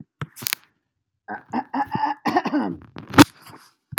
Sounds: Throat clearing